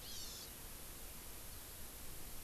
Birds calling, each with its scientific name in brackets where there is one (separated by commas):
Hawaii Amakihi (Chlorodrepanis virens)